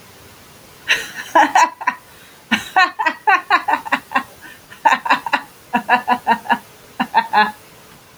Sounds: Laughter